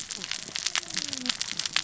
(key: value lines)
label: biophony, cascading saw
recorder: SoundTrap 600 or HydroMoth